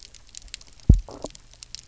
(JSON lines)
{"label": "biophony, double pulse", "recorder": "SoundTrap 300"}
{"label": "biophony", "recorder": "SoundTrap 300"}